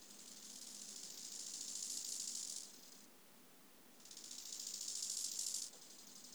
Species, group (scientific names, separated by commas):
Chorthippus biguttulus, Orthoptera